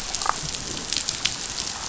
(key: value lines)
label: biophony, damselfish
recorder: SoundTrap 500